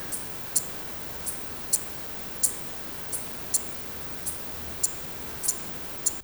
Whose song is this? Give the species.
Eupholidoptera megastyla